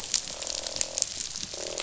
{"label": "biophony, croak", "recorder": "SoundTrap 500"}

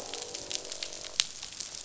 {"label": "biophony, croak", "recorder": "SoundTrap 500"}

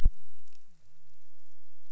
{"label": "biophony", "recorder": "SoundTrap 300"}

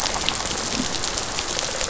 {"label": "biophony, rattle response", "recorder": "SoundTrap 500"}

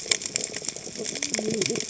{"label": "biophony, cascading saw", "recorder": "HydroMoth"}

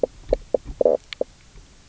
{"label": "biophony, knock croak", "recorder": "SoundTrap 300"}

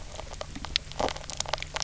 {"label": "biophony, knock croak", "recorder": "SoundTrap 300"}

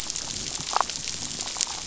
{"label": "biophony", "recorder": "SoundTrap 500"}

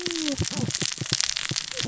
{"label": "biophony, cascading saw", "recorder": "SoundTrap 600 or HydroMoth"}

